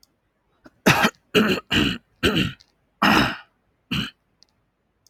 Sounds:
Throat clearing